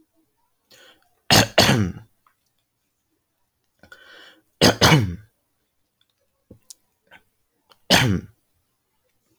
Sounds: Throat clearing